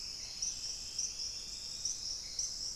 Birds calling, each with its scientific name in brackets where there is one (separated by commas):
Hauxwell's Thrush (Turdus hauxwelli), Dusky-throated Antshrike (Thamnomanes ardesiacus)